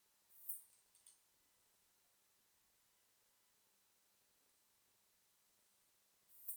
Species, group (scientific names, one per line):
Poecilimon pseudornatus
Orthoptera